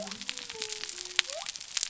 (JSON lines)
{"label": "biophony", "recorder": "SoundTrap 300"}